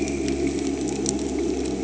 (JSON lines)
{"label": "anthrophony, boat engine", "recorder": "HydroMoth"}